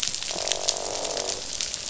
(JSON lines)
{"label": "biophony, croak", "recorder": "SoundTrap 500"}